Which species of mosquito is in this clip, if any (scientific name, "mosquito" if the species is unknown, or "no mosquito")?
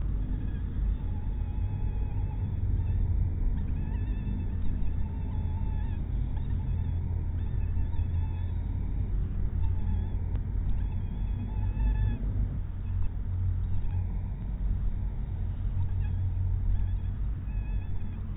mosquito